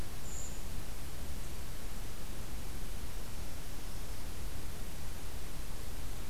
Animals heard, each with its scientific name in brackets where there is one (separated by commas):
Black-throated Green Warbler (Setophaga virens), Brown Creeper (Certhia americana)